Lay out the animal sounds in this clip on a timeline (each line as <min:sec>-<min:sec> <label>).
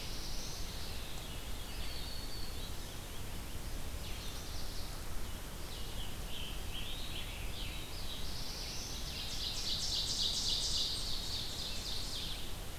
0:00.0-0:00.8 Black-throated Blue Warbler (Setophaga caerulescens)
0:00.8-0:02.0 Veery (Catharus fuscescens)
0:01.7-0:03.1 Black-throated Green Warbler (Setophaga virens)
0:03.6-0:12.8 Red-eyed Vireo (Vireo olivaceus)
0:05.7-0:08.0 Scarlet Tanager (Piranga olivacea)
0:07.5-0:09.3 Black-throated Blue Warbler (Setophaga caerulescens)
0:08.7-0:12.6 Ovenbird (Seiurus aurocapilla)